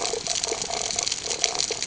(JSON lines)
{"label": "ambient", "recorder": "HydroMoth"}